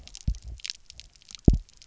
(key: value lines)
label: biophony, double pulse
recorder: SoundTrap 300